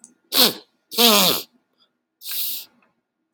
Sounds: Sniff